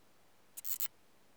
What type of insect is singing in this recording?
orthopteran